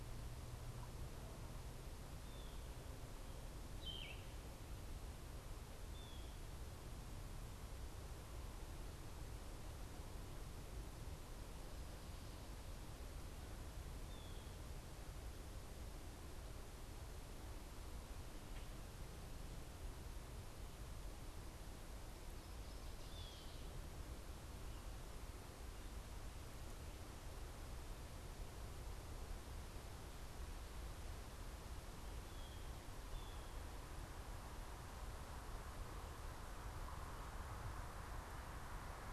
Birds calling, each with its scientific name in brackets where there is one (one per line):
Yellow-throated Vireo (Vireo flavifrons)
Blue Jay (Cyanocitta cristata)
Northern Waterthrush (Parkesia noveboracensis)